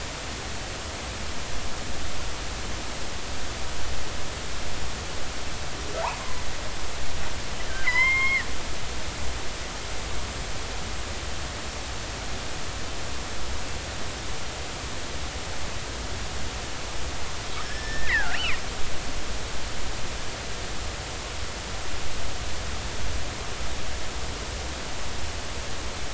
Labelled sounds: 6.1	6.4	killer whale, northern resident, G clan, GG subclan, call N44, 2.0 to 2.2 kHz
6.2	6.4	killer whale, northern resident, G clan, GG subclan, call N23ii, 0.93 to 1.1 kHz
7.8	8.5	killer whale, northern resident, G clan, GG subclan, call N23ii, 0.93 to 5.4 kHz
17.6	18.6	killer whale, northern resident, G clan, GG subclan, call N29, 1.3 to 5.4 kHz

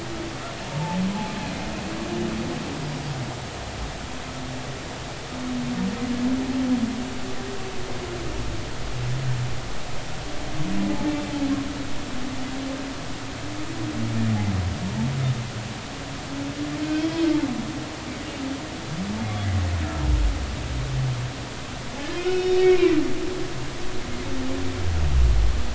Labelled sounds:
0.7	1.0	humpback whale, 0.83 to 0.96 kHz
22.1	22.9	humpback whale, 2.1 to 5.6 kHz

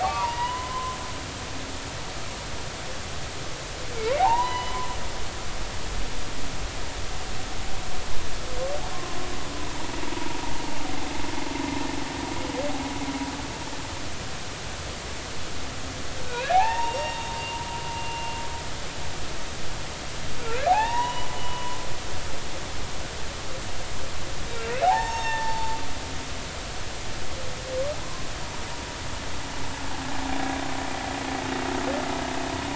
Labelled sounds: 0.0	1.0	humpback whale, 0.80 to 3.0 kHz
4.2	4.9	humpback whale, 0.80 to 5.0 kHz
10.0	10.4	humpback whale, 0.86 to 0.99 kHz
16.3	18.3	humpback whale, 0.80 to 5.6 kHz
20.7	21.8	humpback whale, 0.80 to 3.0 kHz
24.8	25.8	humpback whale, 0.80 to 6.5 kHz
28.0	28.2	humpback whale, 0.96 to 1.1 kHz

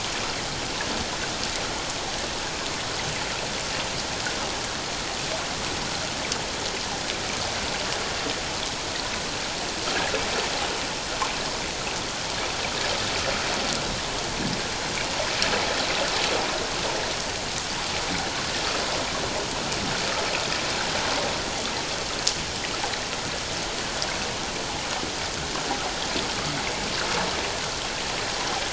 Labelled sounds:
9.9	10.1	water noise, 1.2 to 1.8 kHz

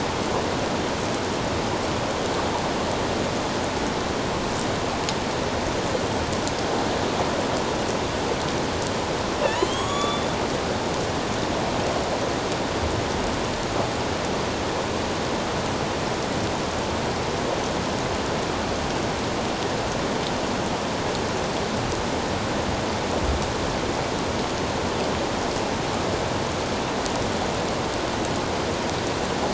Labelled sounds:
9.4	10.2	killer whale, northern resident, A clan, AB subclan, 1.0 to 7.9 kHz

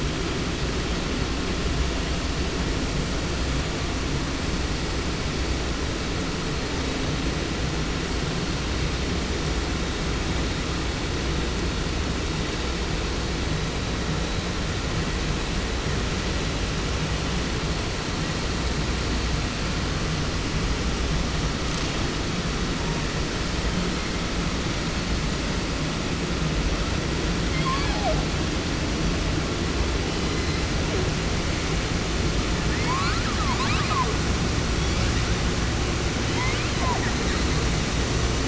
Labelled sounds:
27.4	28.2	killer whale, southern resident, 0.30 to 6.2 kHz
30.0	31.1	killer whale, 0.29 to 5.8 kHz
32.7	34.1	killer whale, southern resident, 0.30 to 8.0 kHz
34.7	35.5	killer whale, 0.56 to 8.0 kHz
36.2	37.0	killer whale, southern resident, 0.30 to 8.0 kHz

